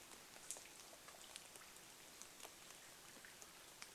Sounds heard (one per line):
rain